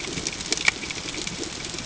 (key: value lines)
label: ambient
recorder: HydroMoth